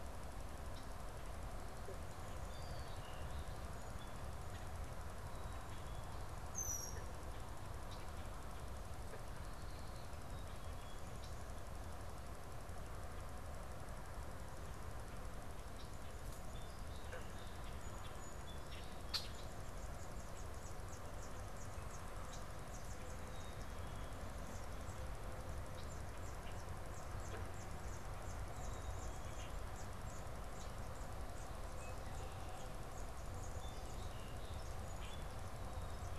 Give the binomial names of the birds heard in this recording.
Melospiza melodia, Agelaius phoeniceus, unidentified bird